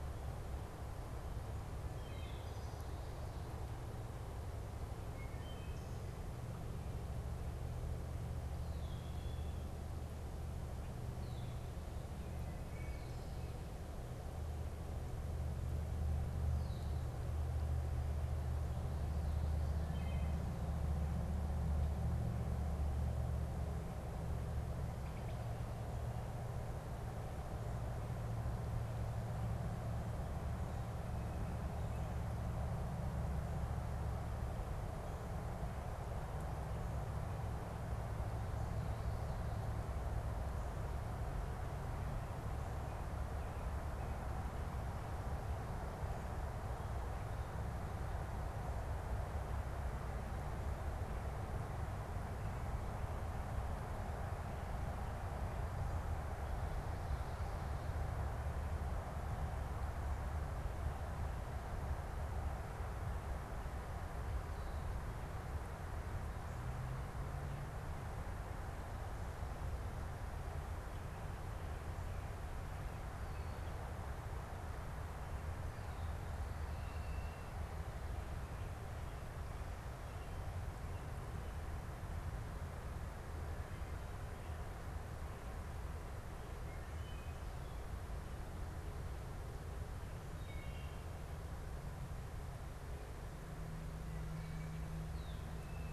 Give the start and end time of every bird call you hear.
1.6s-6.4s: Wood Thrush (Hylocichla mustelina)
8.4s-9.7s: Red-winged Blackbird (Agelaius phoeniceus)
12.3s-13.5s: Wood Thrush (Hylocichla mustelina)
19.5s-20.6s: Wood Thrush (Hylocichla mustelina)
85.9s-95.1s: Wood Thrush (Hylocichla mustelina)
94.9s-95.5s: Red-winged Blackbird (Agelaius phoeniceus)

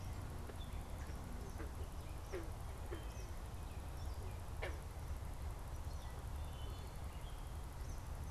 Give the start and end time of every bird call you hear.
1.6s-8.3s: Eastern Kingbird (Tyrannus tyrannus)

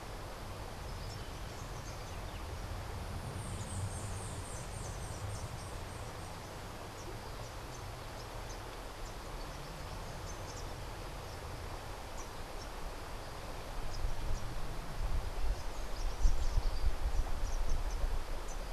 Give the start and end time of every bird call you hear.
3.4s-5.8s: White-eared Ground-Sparrow (Melozone leucotis)

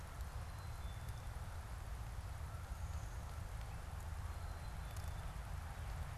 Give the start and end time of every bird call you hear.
0.1s-5.4s: Black-capped Chickadee (Poecile atricapillus)

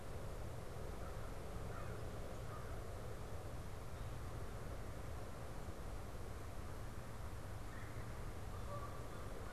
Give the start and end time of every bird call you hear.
0.0s-9.5s: Canada Goose (Branta canadensis)
0.8s-2.9s: American Crow (Corvus brachyrhynchos)
7.6s-8.2s: Red-bellied Woodpecker (Melanerpes carolinus)

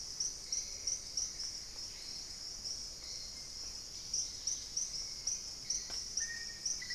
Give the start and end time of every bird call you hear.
0.0s-6.9s: Hauxwell's Thrush (Turdus hauxwelli)
3.8s-5.0s: Dusky-capped Greenlet (Pachysylvia hypoxantha)
6.0s-6.9s: Black-faced Antthrush (Formicarius analis)

